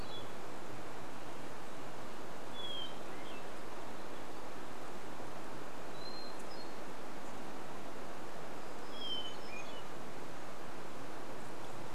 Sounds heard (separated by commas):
Hermit Thrush song, airplane, warbler song